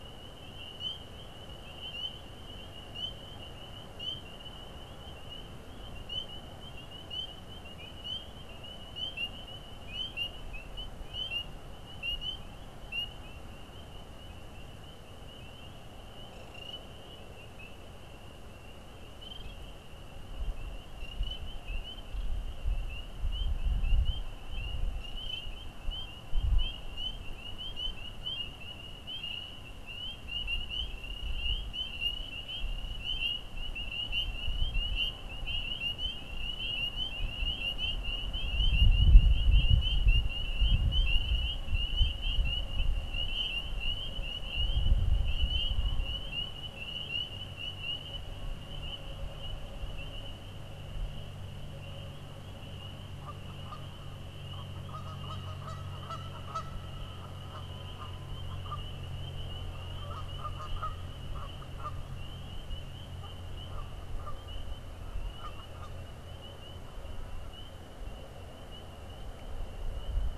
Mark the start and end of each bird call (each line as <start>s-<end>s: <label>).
53.0s-56.8s: Canada Goose (Branta canadensis)
57.2s-66.0s: Canada Goose (Branta canadensis)